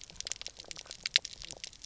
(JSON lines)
{"label": "biophony, pulse", "recorder": "SoundTrap 300"}